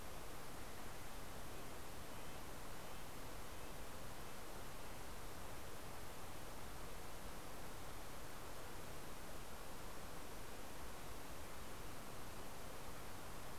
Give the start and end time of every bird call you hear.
[0.00, 5.20] Red-breasted Nuthatch (Sitta canadensis)

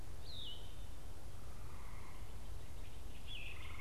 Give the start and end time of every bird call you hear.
[0.00, 3.80] Yellow-throated Vireo (Vireo flavifrons)
[2.60, 3.80] Great Crested Flycatcher (Myiarchus crinitus)

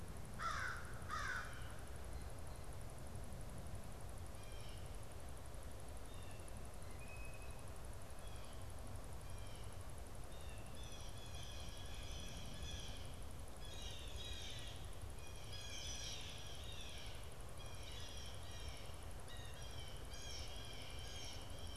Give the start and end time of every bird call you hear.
[0.14, 2.04] American Crow (Corvus brachyrhynchos)
[4.24, 21.76] Blue Jay (Cyanocitta cristata)

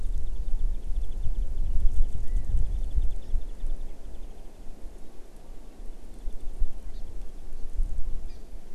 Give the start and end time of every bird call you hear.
[0.00, 4.70] Warbling White-eye (Zosterops japonicus)
[2.20, 2.60] California Quail (Callipepla californica)
[6.90, 7.00] Hawaii Amakihi (Chlorodrepanis virens)
[8.30, 8.40] Hawaii Amakihi (Chlorodrepanis virens)

